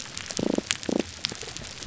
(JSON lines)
{"label": "biophony", "recorder": "SoundTrap 300"}